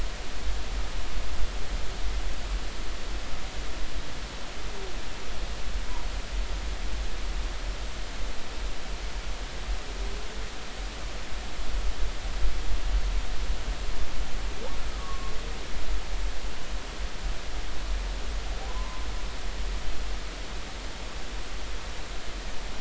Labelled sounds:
14.9	15.3	humpback whale, 1.0 to 1.3 kHz
18.7	19.1	humpback whale, 0.96 to 1.1 kHz

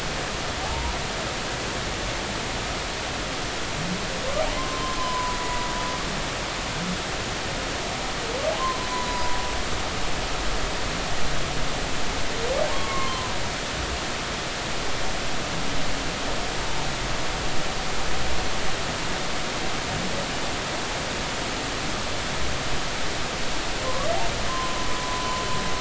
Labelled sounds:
4.5	5.7	humpback whale, 0.93 to 1.1 kHz
8.8	9.4	humpback whale, 0.93 to 1.1 kHz
12.7	13.3	humpback whale, 0.90 to 1.2 kHz
23.8	25.4	humpback whale, 0.86 to 1.2 kHz

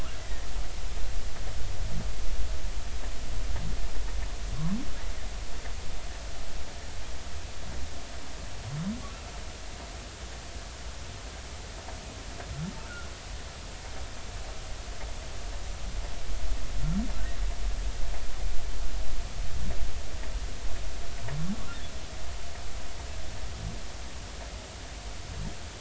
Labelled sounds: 0.2	0.5	humpback whale, 1.8 to 2.0 kHz

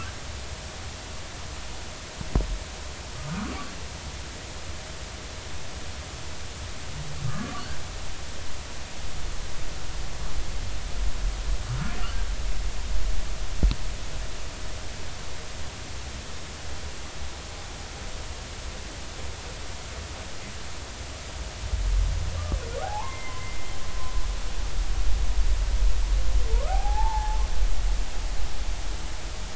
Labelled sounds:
7.2	7.6	humpback whale, 1.1 to 1.3 kHz
22.8	23.7	humpback whale, 0.80 to 2.2 kHz
26.5	27.4	humpback whale, 0.80 to 1.5 kHz

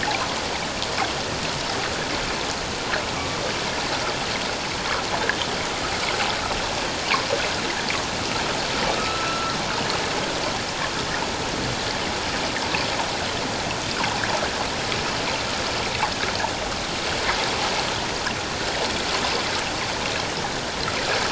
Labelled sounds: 3.1	3.4	killer whale, northern resident, A clan, AB subclan, 1.1 to 1.3 kHz
9.0	9.6	killer whale, northern resident, A clan, AB subclan, 1.2 to 1.4 kHz

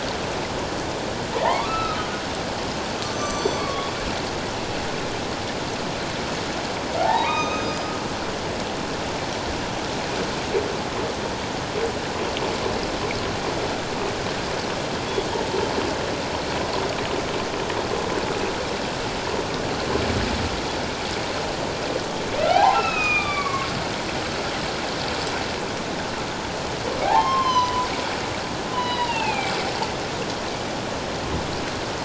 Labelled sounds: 1.3	2.1	humpback whale, 0.78 to 2.7 kHz
3.0	3.9	humpback whale, 1.1 to 7.6 kHz
7.0	7.9	humpback whale, 0.78 to 5.1 kHz
22.5	23.7	humpback whale, 0.78 to 4.0 kHz
27.0	29.5	humpback whale, 0.78 to 6.2 kHz

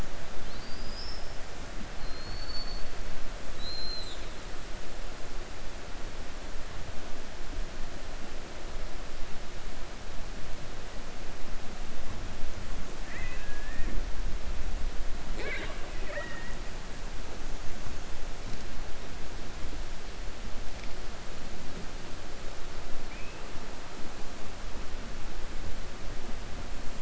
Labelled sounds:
2.0	2.9	killer whale, 4.1 to 4.7 kHz

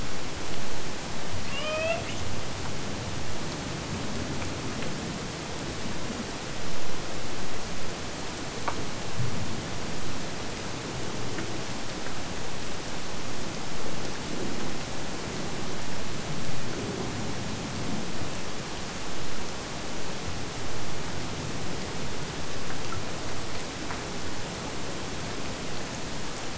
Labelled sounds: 1.4	2.2	killer whale, Bigg's (transient), AT1 transient, 0.51 to 5.9 kHz

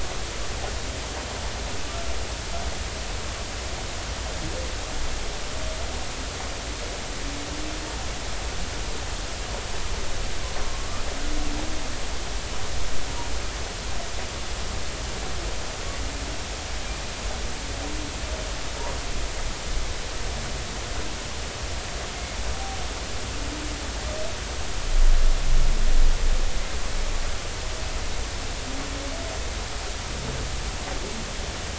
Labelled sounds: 10.7	11.0	humpback whale, 1.1 to 1.4 kHz

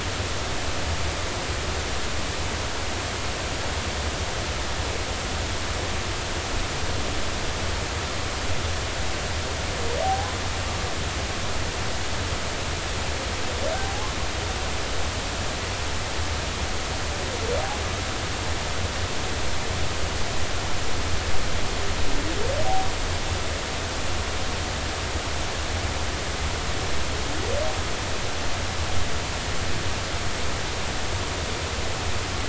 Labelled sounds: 10.0	10.3	humpback whale, 0.80 to 0.86 kHz
13.8	14.1	humpback whale, 0.80 to 0.90 kHz

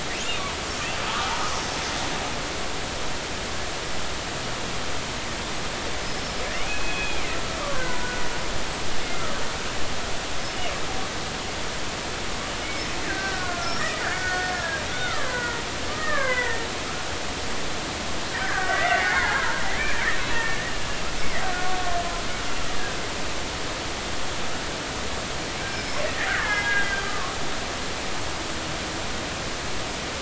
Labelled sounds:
0.1	1.5	killer whale, Bigg's (transient), 0.80 to 2.9 kHz
6.0	7.3	killer whale, Bigg's (transient), 2.0 to 5.4 kHz
7.7	8.2	killer whale, Bigg's (transient), 0.93 to 1.6 kHz
9.1	9.4	killer whale, Bigg's (transient), 1.2 to 1.4 kHz
13.0	16.7	killer whale, Bigg's (transient), 0.90 to 5.7 kHz
18.4	21.6	killer whale, Bigg's (transient), 0.80 to 2.8 kHz
25.6	26.0	killer whale, Bigg's (transient), 1.5 to 5.6 kHz
26.3	27.3	killer whale, Bigg's (transient), 0.80 to 2.2 kHz

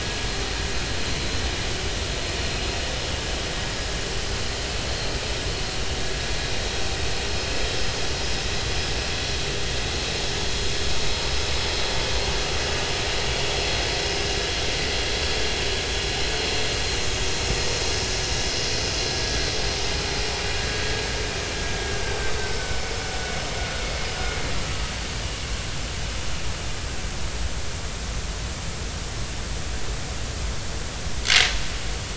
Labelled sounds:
24.0	24.3	vessel noise, 5.0 to 5.1 kHz
31.2	31.5	vessel noise, 2.0 to 2.3 kHz

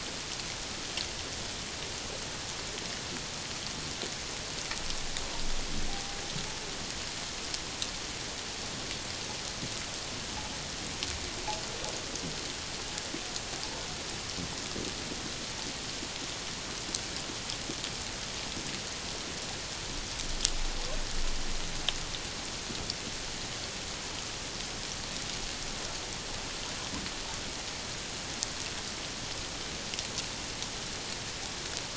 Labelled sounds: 5.9	6.2	humpback whale, 0.78 to 0.84 kHz

